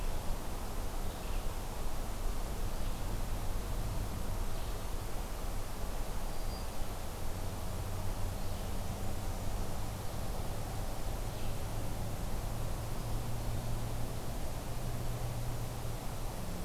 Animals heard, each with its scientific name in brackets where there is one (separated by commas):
Black-throated Green Warbler (Setophaga virens), Red-eyed Vireo (Vireo olivaceus)